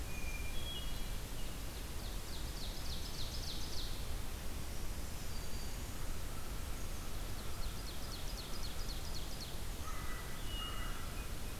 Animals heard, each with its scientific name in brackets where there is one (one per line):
Ovenbird (Seiurus aurocapilla)
Hermit Thrush (Catharus guttatus)
American Crow (Corvus brachyrhynchos)
Black-throated Green Warbler (Setophaga virens)